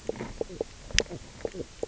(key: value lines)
label: biophony, knock croak
recorder: SoundTrap 300